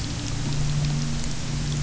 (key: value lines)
label: anthrophony, boat engine
recorder: SoundTrap 300